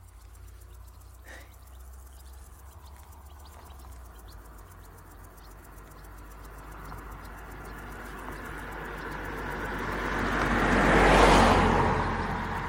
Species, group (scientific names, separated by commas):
Omocestus viridulus, Orthoptera